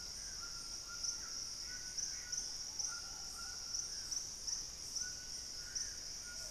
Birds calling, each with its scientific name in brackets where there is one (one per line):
Gray Antbird (Cercomacra cinerascens)
White-throated Toucan (Ramphastos tucanus)